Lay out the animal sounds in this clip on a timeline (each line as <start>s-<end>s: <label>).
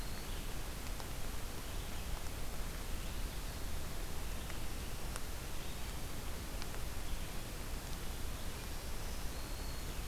0.0s-0.5s: Eastern Wood-Pewee (Contopus virens)
0.0s-10.1s: Red-eyed Vireo (Vireo olivaceus)
8.3s-10.1s: Black-throated Green Warbler (Setophaga virens)